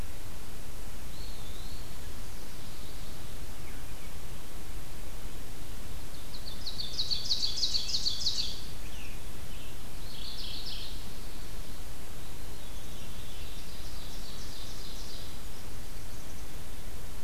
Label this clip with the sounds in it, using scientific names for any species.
Contopus virens, Catharus fuscescens, Seiurus aurocapilla, Piranga olivacea, Geothlypis philadelphia, Poecile atricapillus